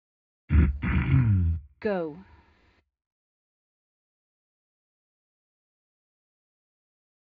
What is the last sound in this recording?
speech